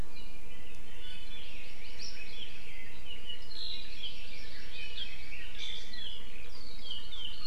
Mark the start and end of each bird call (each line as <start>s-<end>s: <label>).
1.3s-2.7s: Hawaii Amakihi (Chlorodrepanis virens)
1.3s-6.0s: Red-billed Leiothrix (Leiothrix lutea)
3.6s-5.4s: Hawaii Amakihi (Chlorodrepanis virens)